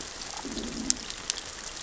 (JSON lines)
{"label": "biophony, growl", "recorder": "SoundTrap 600 or HydroMoth"}